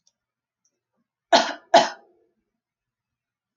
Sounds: Cough